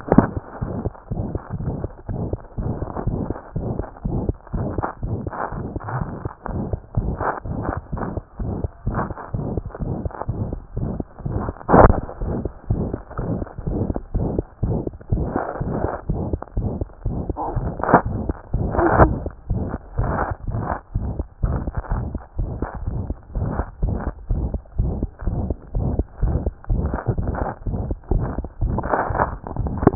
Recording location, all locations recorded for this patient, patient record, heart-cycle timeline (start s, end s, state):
aortic valve (AV)
aortic valve (AV)+mitral valve (MV)
#Age: Child
#Sex: Male
#Height: 86.0 cm
#Weight: 9.9 kg
#Pregnancy status: False
#Murmur: Present
#Murmur locations: aortic valve (AV)+mitral valve (MV)
#Most audible location: aortic valve (AV)
#Systolic murmur timing: Holosystolic
#Systolic murmur shape: Plateau
#Systolic murmur grading: I/VI
#Systolic murmur pitch: High
#Systolic murmur quality: Harsh
#Diastolic murmur timing: nan
#Diastolic murmur shape: nan
#Diastolic murmur grading: nan
#Diastolic murmur pitch: nan
#Diastolic murmur quality: nan
#Outcome: Abnormal
#Campaign: 2014 screening campaign
0.00	3.56	unannotated
3.56	3.64	S1
3.64	3.78	systole
3.78	3.85	S2
3.85	4.05	diastole
4.05	4.13	S1
4.13	4.27	systole
4.27	4.34	S2
4.34	4.54	diastole
4.54	4.61	S1
4.61	4.78	systole
4.78	4.85	S2
4.85	5.03	diastole
5.03	5.11	S1
5.11	5.26	systole
5.26	5.33	S2
5.33	5.53	diastole
5.53	5.61	S1
5.61	5.75	systole
5.75	5.80	S2
5.80	5.98	diastole
5.98	6.06	S1
6.06	6.25	systole
6.25	6.29	S2
6.29	6.49	diastole
6.49	29.95	unannotated